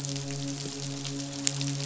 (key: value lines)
label: biophony, midshipman
recorder: SoundTrap 500